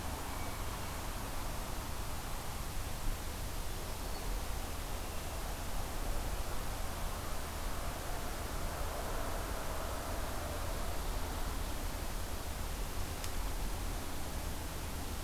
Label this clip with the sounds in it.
Hermit Thrush